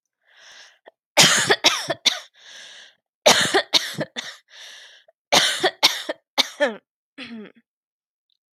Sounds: Cough